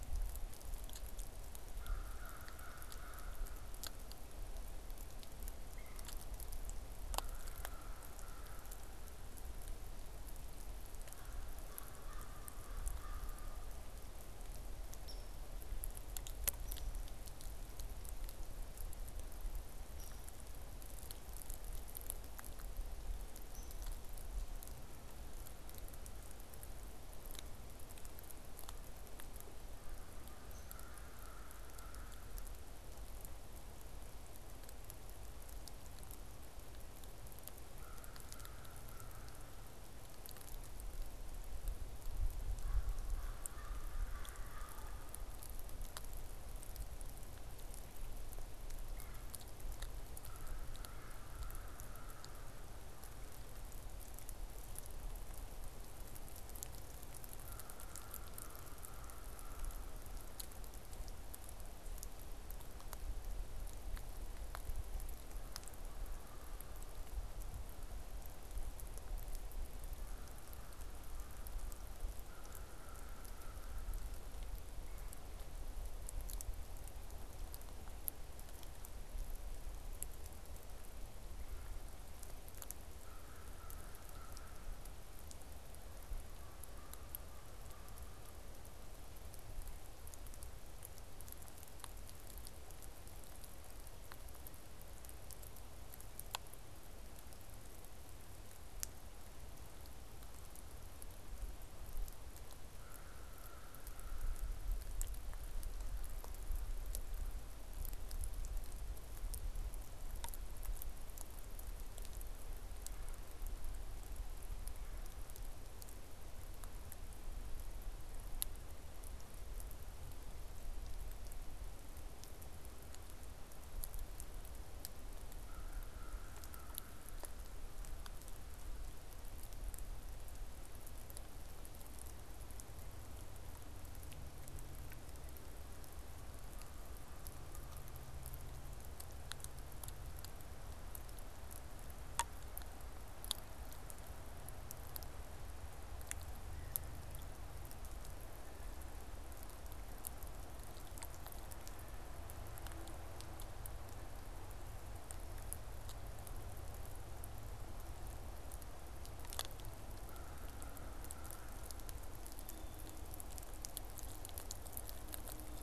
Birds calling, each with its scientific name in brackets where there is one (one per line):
American Crow (Corvus brachyrhynchos)
Downy Woodpecker (Dryobates pubescens)
Red-bellied Woodpecker (Melanerpes carolinus)